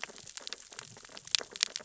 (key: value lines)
label: biophony, sea urchins (Echinidae)
recorder: SoundTrap 600 or HydroMoth